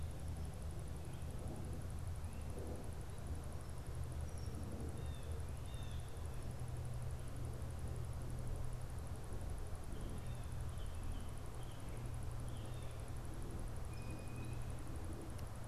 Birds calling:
Blue Jay (Cyanocitta cristata), American Robin (Turdus migratorius)

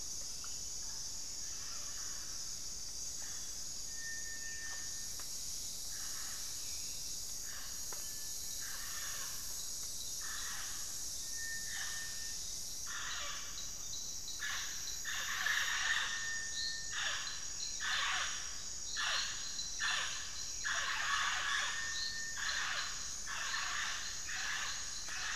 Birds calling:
Cinereous Tinamou (Crypturellus cinereus)

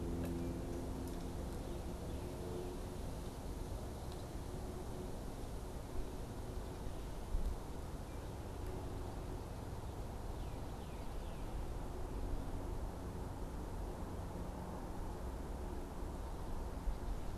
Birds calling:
Northern Cardinal (Cardinalis cardinalis)

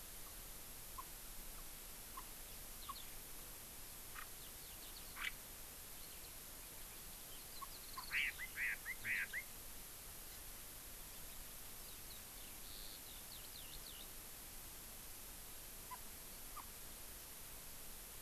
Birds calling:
Warbling White-eye (Zosterops japonicus), Chinese Hwamei (Garrulax canorus), Eurasian Skylark (Alauda arvensis)

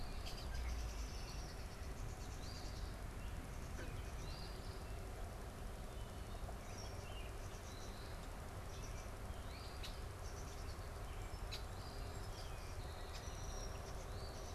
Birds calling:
Eastern Phoebe (Sayornis phoebe), Red-winged Blackbird (Agelaius phoeniceus), unidentified bird, Song Sparrow (Melospiza melodia)

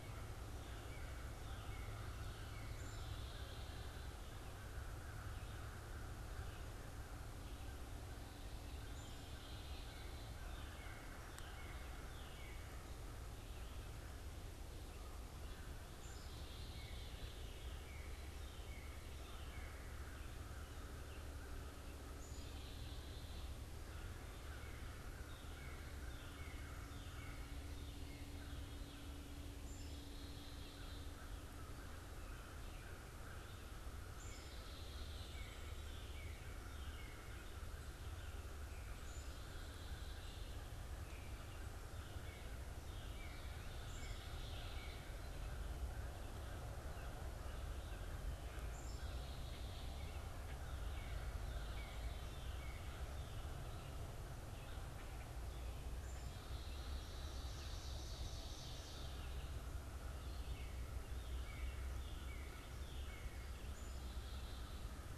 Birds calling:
Ovenbird (Seiurus aurocapilla), American Crow (Corvus brachyrhynchos), Northern Cardinal (Cardinalis cardinalis), Black-capped Chickadee (Poecile atricapillus)

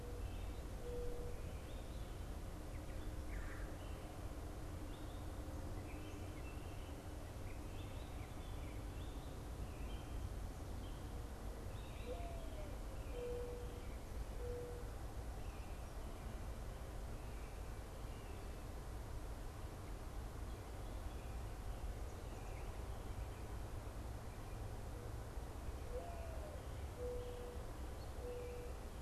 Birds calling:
Red-bellied Woodpecker (Melanerpes carolinus), American Robin (Turdus migratorius), Mourning Dove (Zenaida macroura)

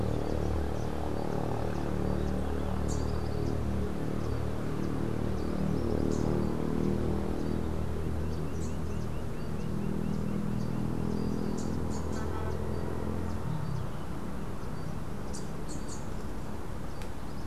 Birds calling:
Lineated Woodpecker (Dryocopus lineatus), Rufous-capped Warbler (Basileuterus rufifrons)

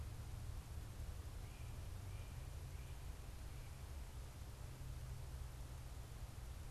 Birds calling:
American Crow (Corvus brachyrhynchos)

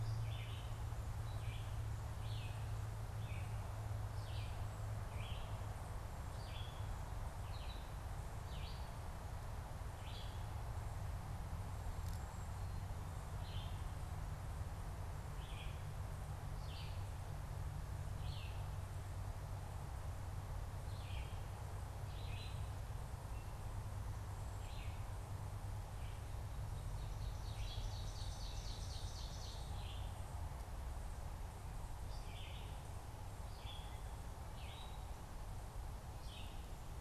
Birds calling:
Red-eyed Vireo (Vireo olivaceus), Ovenbird (Seiurus aurocapilla)

